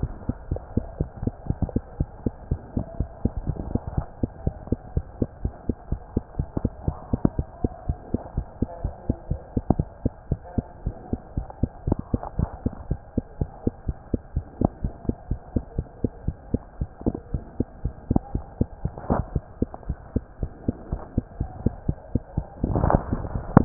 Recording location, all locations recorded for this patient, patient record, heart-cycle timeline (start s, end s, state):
mitral valve (MV)
aortic valve (AV)+pulmonary valve (PV)+tricuspid valve (TV)+mitral valve (MV)
#Age: Child
#Sex: Female
#Height: 127.0 cm
#Weight: 24.2 kg
#Pregnancy status: False
#Murmur: Absent
#Murmur locations: nan
#Most audible location: nan
#Systolic murmur timing: nan
#Systolic murmur shape: nan
#Systolic murmur grading: nan
#Systolic murmur pitch: nan
#Systolic murmur quality: nan
#Diastolic murmur timing: nan
#Diastolic murmur shape: nan
#Diastolic murmur grading: nan
#Diastolic murmur pitch: nan
#Diastolic murmur quality: nan
#Outcome: Normal
#Campaign: 2015 screening campaign
0.00	10.31	unannotated
10.31	10.40	S1
10.40	10.54	systole
10.54	10.66	S2
10.66	10.84	diastole
10.84	10.96	S1
10.96	11.12	systole
11.12	11.20	S2
11.20	11.36	diastole
11.36	11.46	S1
11.46	11.58	systole
11.58	11.72	S2
11.72	11.86	diastole
11.86	12.00	S1
12.00	12.12	systole
12.12	12.22	S2
12.22	12.34	diastole
12.34	12.52	S1
12.52	12.64	systole
12.64	12.74	S2
12.74	12.90	diastole
12.90	13.00	S1
13.00	13.14	systole
13.14	13.26	S2
13.26	13.40	diastole
13.40	13.50	S1
13.50	13.62	systole
13.62	13.76	S2
13.76	13.88	diastole
13.88	13.98	S1
13.98	14.12	systole
14.12	14.22	S2
14.22	14.34	diastole
14.34	14.44	S1
14.44	14.59	systole
14.59	14.72	S2
14.72	14.84	diastole
14.84	14.94	S1
14.94	15.08	systole
15.08	15.18	S2
15.18	15.30	diastole
15.30	15.40	S1
15.40	15.52	systole
15.52	15.64	S2
15.64	15.78	diastole
15.78	15.88	S1
15.88	16.00	systole
16.00	16.12	S2
16.12	16.26	diastole
16.26	16.38	S1
16.38	16.50	systole
16.50	16.64	S2
16.64	16.80	diastole
16.80	16.90	S1
16.90	17.02	systole
17.02	17.16	S2
17.16	17.30	diastole
17.30	17.44	S1
17.44	17.56	systole
17.56	17.70	S2
17.70	17.84	diastole
17.84	17.94	S1
17.94	18.06	systole
18.06	18.22	S2
18.22	18.34	diastole
18.34	18.46	S1
18.46	18.56	systole
18.56	18.68	S2
18.68	18.82	diastole
18.82	18.94	S1
18.94	23.65	unannotated